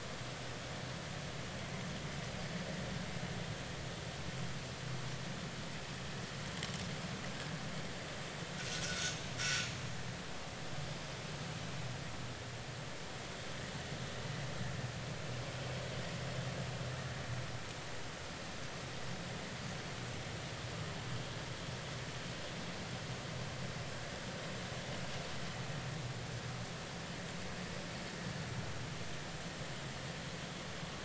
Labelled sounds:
8.7	9.7	vessel noise, 1.3 to 5.8 kHz

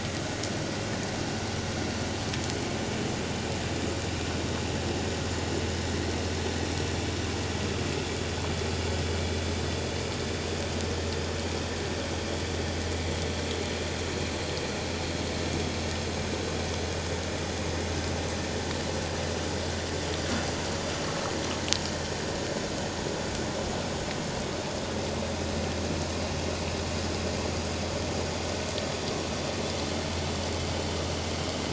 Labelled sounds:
12.8	13.0	vessel noise, 1.9 to 2.1 kHz

